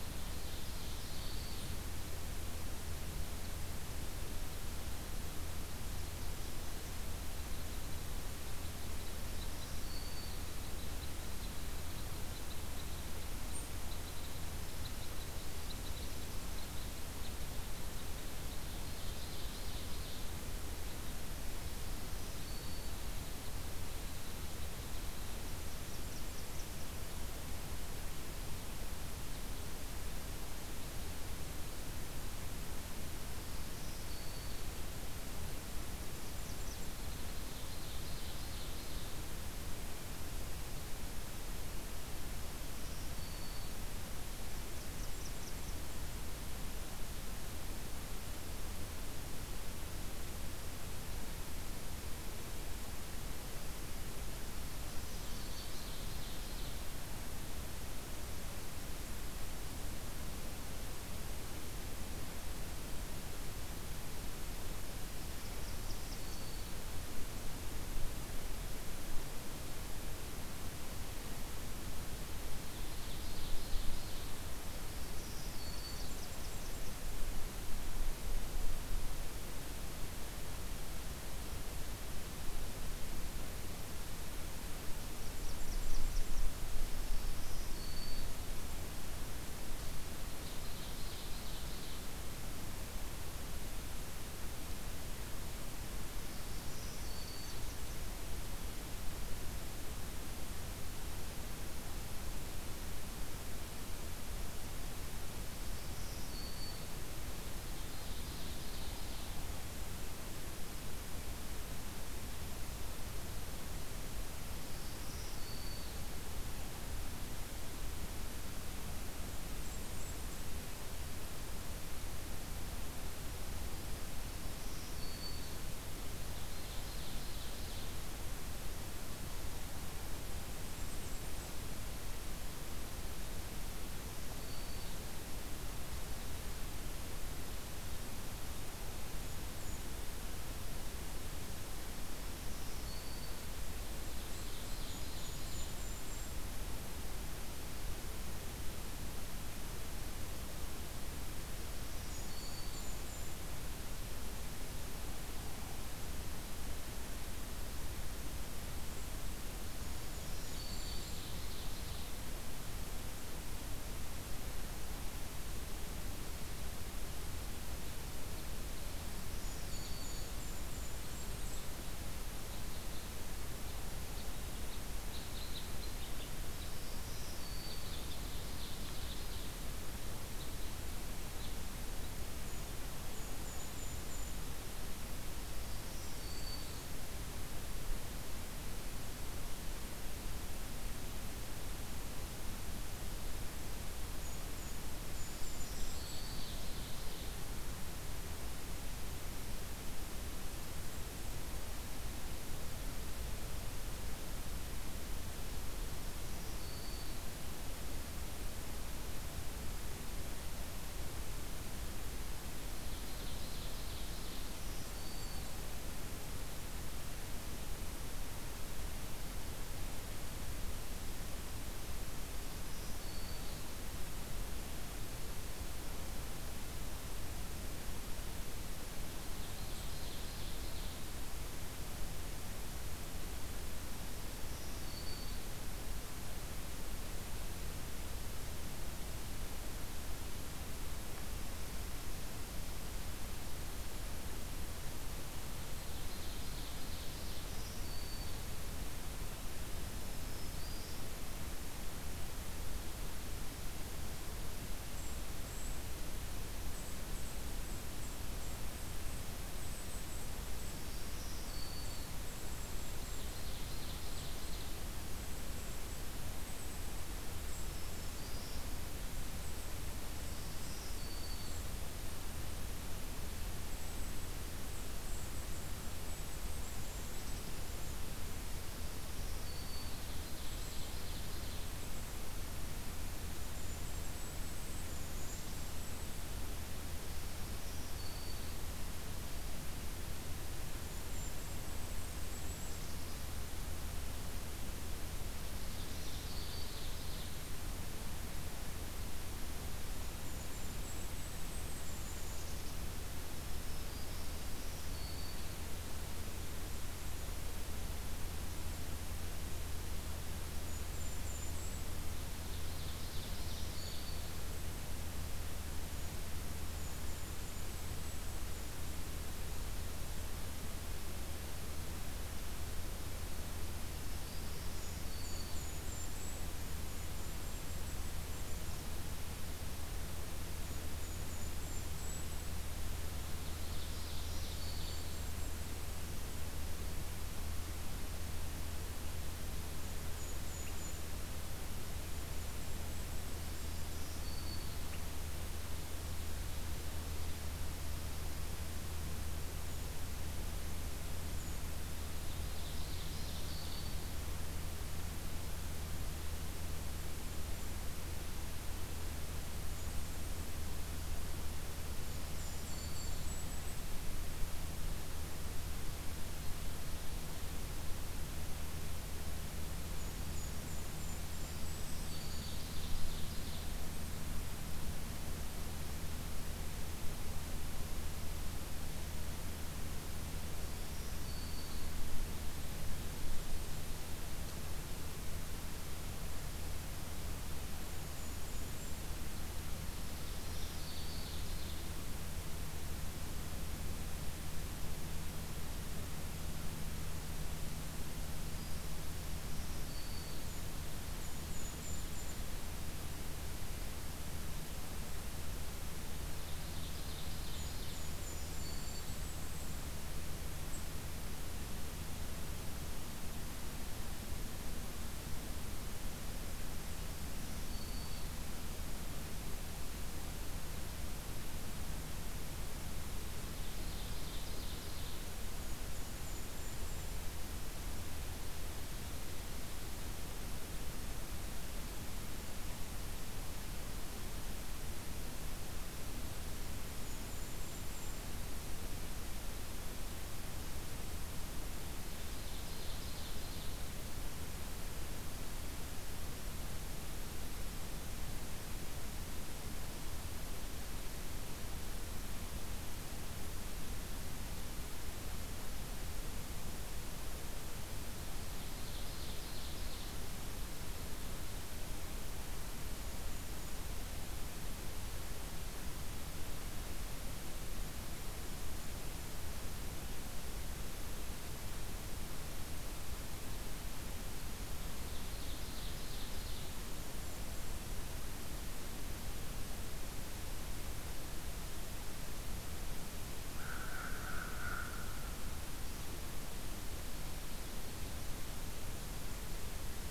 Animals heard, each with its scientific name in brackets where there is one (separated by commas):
Blackburnian Warbler (Setophaga fusca), Black-and-white Warbler (Mniotilta varia), Red Crossbill (Loxia curvirostra), Black-throated Green Warbler (Setophaga virens), Ovenbird (Seiurus aurocapilla), American Crow (Corvus brachyrhynchos), Golden-crowned Kinglet (Regulus satrapa)